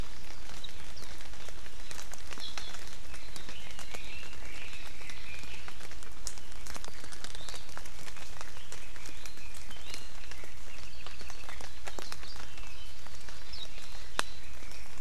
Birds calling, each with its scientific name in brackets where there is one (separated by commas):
Warbling White-eye (Zosterops japonicus), Red-billed Leiothrix (Leiothrix lutea), Apapane (Himatione sanguinea)